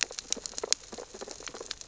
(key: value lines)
label: biophony, sea urchins (Echinidae)
recorder: SoundTrap 600 or HydroMoth